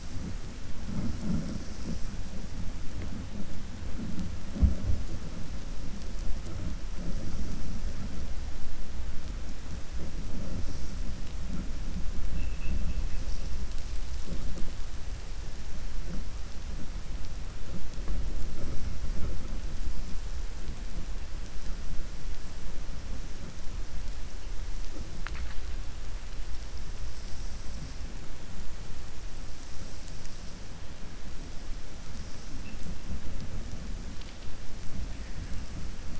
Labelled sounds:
12.2	13.2	vessel noise, 1.7 to 2.9 kHz

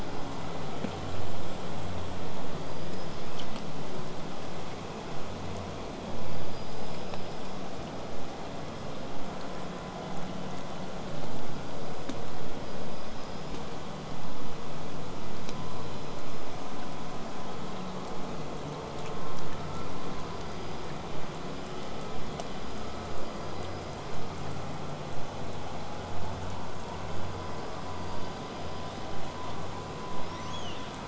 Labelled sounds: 2.5	3.5	killer whale, southern resident, 1.5 to 8.0 kHz
6.3	7.9	killer whale, southern resident, 4.6 to 8.0 kHz
11.4	13.7	killer whale, southern resident, 4.6 to 8.0 kHz
15.4	16.4	killer whale, southern resident, 4.7 to 8.0 kHz
16.5	20.1	vessel noise, 0 to 8.0 kHz
20.2	24.1	killer whale, southern resident, 4.4 to 8.0 kHz
27.2	29.2	killer whale, southern resident, 4.4 to 8.0 kHz
30.2	30.9	killer whale, southern resident, 1.5 to 8.0 kHz

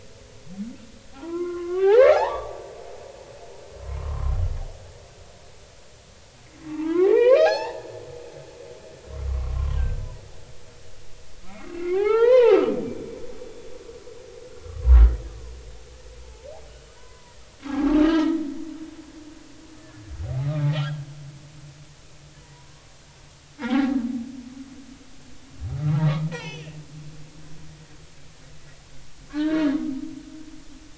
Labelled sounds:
1.1	2.6	humpback whale, 0.80 to 4.4 kHz
3.8	4.3	humpback whale, 0.96 to 1.1 kHz
6.7	8.0	humpback whale, 0.80 to 5.6 kHz
9.3	10.0	humpback whale, 0.99 to 1.6 kHz
11.5	12.6	humpback whale, 0.80 to 4.2 kHz
13.4	14.2	humpback whale, 2.3 to 3.5 kHz
14.6	15.0	humpback whale, 0.90 to 1.3 kHz
16.2	16.5	humpback whale, 0.83 to 0.96 kHz
17.0	17.4	humpback whale, 0.93 to 1.1 kHz
17.6	18.4	humpback whale, 0.80 to 2.0 kHz
20.4	21.0	humpback whale, 1.1 to 3.4 kHz
22.5	22.9	humpback whale, 0.90 to 1.2 kHz
23.6	24.0	humpback whale, 0.80 to 2.3 kHz
26.3	26.8	humpback whale, 1.7 to 6.1 kHz
29.3	29.6	humpback whale, 1.4 to 4.0 kHz

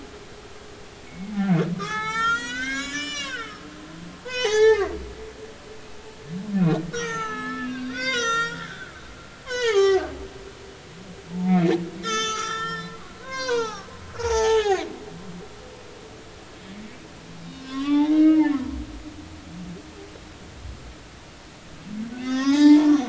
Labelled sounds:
1.1	3.6	humpback whale, 0.80 to 8.0 kHz
4.2	4.9	humpback whale, 0.80 to 6.7 kHz
6.6	8.9	humpback whale, 0.83 to 7.9 kHz
9.5	10.1	humpback whale, 0.80 to 7.2 kHz
11.3	14.9	humpback whale, 0.80 to 8.0 kHz
17.5	18.8	humpback whale, 0.80 to 5.4 kHz
22.1	23.0	humpback whale, 0.80 to 6.6 kHz

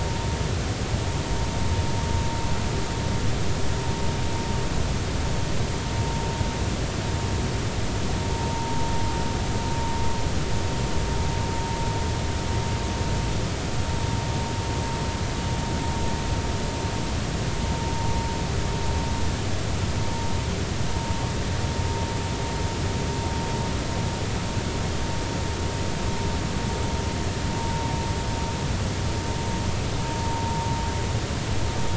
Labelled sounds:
8.3	8.8	vessel noise, 0.86 to 0.99 kHz

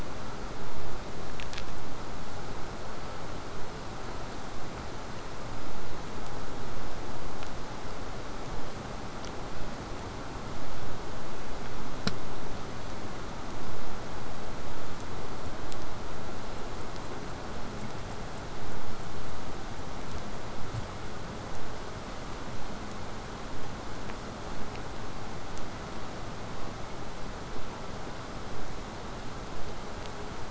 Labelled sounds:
25.5	30.4	vessel noise, 0 to 8.0 kHz

